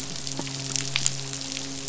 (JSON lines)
{"label": "biophony, midshipman", "recorder": "SoundTrap 500"}